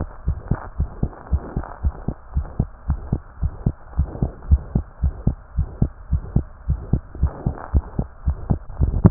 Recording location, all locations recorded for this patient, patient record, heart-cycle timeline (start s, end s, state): tricuspid valve (TV)
aortic valve (AV)+pulmonary valve (PV)+tricuspid valve (TV)+mitral valve (MV)
#Age: Child
#Sex: Female
#Height: 74.0 cm
#Weight: 7.8 kg
#Pregnancy status: False
#Murmur: Present
#Murmur locations: tricuspid valve (TV)
#Most audible location: tricuspid valve (TV)
#Systolic murmur timing: Early-systolic
#Systolic murmur shape: Decrescendo
#Systolic murmur grading: I/VI
#Systolic murmur pitch: Low
#Systolic murmur quality: Blowing
#Diastolic murmur timing: nan
#Diastolic murmur shape: nan
#Diastolic murmur grading: nan
#Diastolic murmur pitch: nan
#Diastolic murmur quality: nan
#Outcome: Abnormal
#Campaign: 2015 screening campaign
0.00	0.24	unannotated
0.24	0.38	S1
0.38	0.50	systole
0.50	0.60	S2
0.60	0.78	diastole
0.78	0.90	S1
0.90	1.00	systole
1.00	1.12	S2
1.12	1.30	diastole
1.30	1.42	S1
1.42	1.56	systole
1.56	1.66	S2
1.66	1.84	diastole
1.84	1.94	S1
1.94	2.04	systole
2.04	2.14	S2
2.14	2.34	diastole
2.34	2.48	S1
2.48	2.58	systole
2.58	2.68	S2
2.68	2.88	diastole
2.88	3.00	S1
3.00	3.10	systole
3.10	3.22	S2
3.22	3.40	diastole
3.40	3.52	S1
3.52	3.62	systole
3.62	3.74	S2
3.74	3.96	diastole
3.96	4.10	S1
4.10	4.20	systole
4.20	4.32	S2
4.32	4.50	diastole
4.50	4.64	S1
4.64	4.74	systole
4.74	4.84	S2
4.84	5.02	diastole
5.02	5.14	S1
5.14	5.24	systole
5.24	5.38	S2
5.38	5.56	diastole
5.56	5.68	S1
5.68	5.78	systole
5.78	5.90	S2
5.90	6.10	diastole
6.10	6.24	S1
6.24	6.34	systole
6.34	6.46	S2
6.46	6.68	diastole
6.68	6.82	S1
6.82	6.92	systole
6.92	7.02	S2
7.02	7.20	diastole
7.20	7.32	S1
7.32	7.44	systole
7.44	7.56	S2
7.56	7.74	diastole
7.74	7.86	S1
7.86	7.98	systole
7.98	8.08	S2
8.08	8.26	diastole
8.26	8.38	S1
8.38	8.46	systole
8.46	8.58	S2
8.58	8.78	diastole
8.78	8.92	S1
8.92	9.10	unannotated